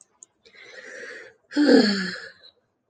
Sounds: Sigh